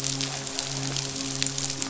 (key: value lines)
label: biophony, midshipman
recorder: SoundTrap 500